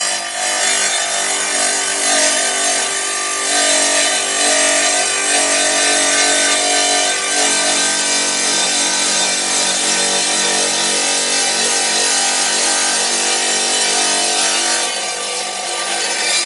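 0.0s A table saw cutting through wood, producing a whirring and grinding sound with varying feedback. 14.9s
15.0s A table saw spins, producing a whirring metallic sound. 16.4s

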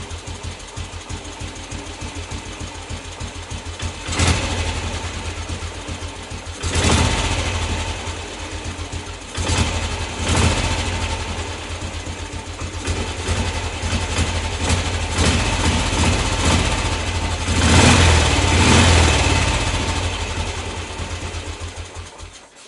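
0.0s A motorbike engine idling. 4.0s
4.0s A motorbike engine revs briefly. 4.8s
4.7s A motorbike engine idling. 6.5s
6.5s A motorbike engine revs briefly. 8.1s
8.0s A motorbike engine idling. 9.2s
9.2s A motorbike engine revs repeatedly to higher and higher RPM. 11.4s
11.4s A motorbike engine idling. 12.8s
12.8s A motorbike engine revs repeatedly to higher and higher RPM. 20.1s
20.1s A motorbike engine shuts off. 22.7s

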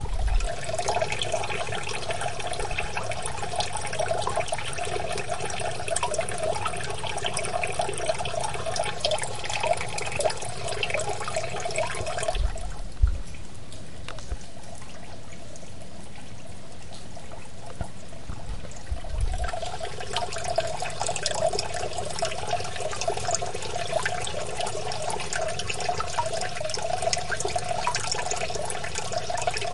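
0.0s Water trickling and fading out. 12.8s
12.7s Water trickling quietly. 18.9s
18.8s Water trickling, gradually getting louder. 29.7s

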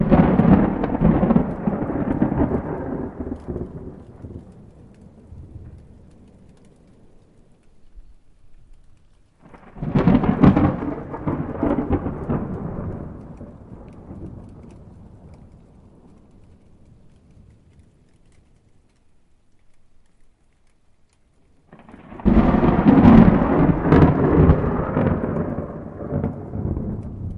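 0.0s Loud thunderclap fading away. 5.8s
9.5s Distant thunder rumbling and fading. 15.4s
21.9s Thunder strikes loudly nearby and then fades. 27.4s

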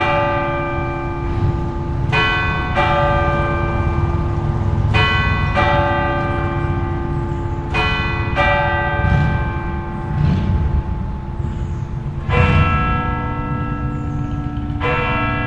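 0.0s Church bells ringing in a city with vehicle muffler sounds in the background. 15.5s

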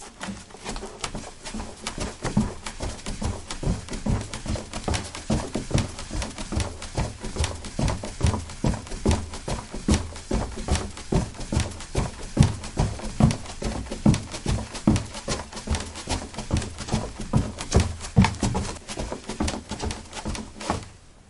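0.0s Thumping footsteps on a hollow wooden surface. 21.3s

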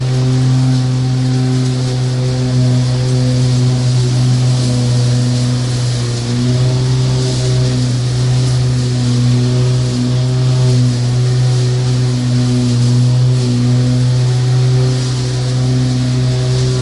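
0.0s A lawnmower is running nearby. 16.8s

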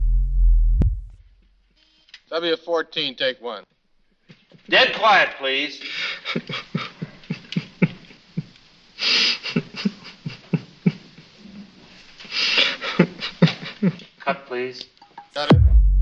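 0.0s A synthesizer produces a quick, artificial sound. 1.1s
2.1s A man speaks loudly and aggressively with a pause. 5.8s
5.8s A voice actor sobs loudly with pauses. 14.2s
14.2s Two men speak clearly and decisively with authority. 16.0s
15.0s A recording machine is turned off with a muffled, quick sound. 15.2s
15.4s A synthesizer produces a fast, artificial sound indicating shutdown. 16.0s

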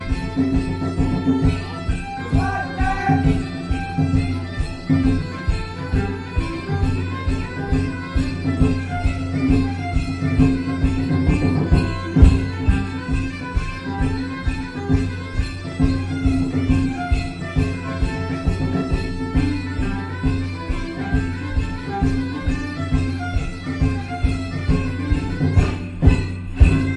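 0.1s A band is playing rhythmic music indoors. 27.0s
2.3s A male voice repeating loudly. 3.5s

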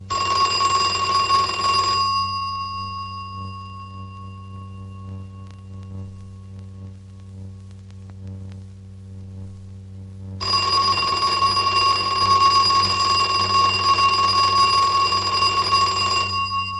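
0.0s Metallic ringing from an old telephone or alarm clock, prominent at the beginning and then fading into the background. 6.4s
0.0s A consistent deep humming sound of electric current. 16.8s
10.4s A metallic ringing sound from an old telephone or alarm clock ending abruptly. 16.8s

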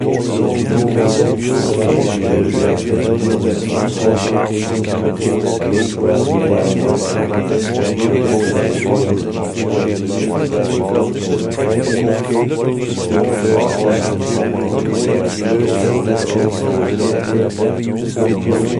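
0.1s Men mumbling loudly in a constant manner. 18.8s

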